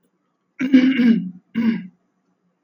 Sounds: Throat clearing